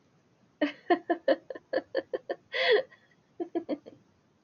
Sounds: Laughter